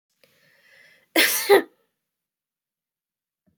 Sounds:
Sneeze